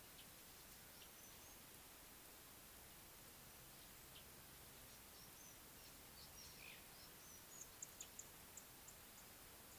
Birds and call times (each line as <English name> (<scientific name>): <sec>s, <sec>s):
Purple Grenadier (Granatina ianthinogaster): 8.6s